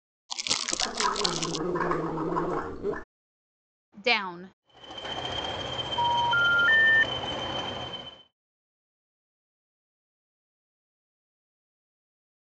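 First, there is crumpling. Over it, someone gargles. Then a voice says "down." After that, a train can be heard, fading in and later fading out. Meanwhile, you can hear the sound of a telephone.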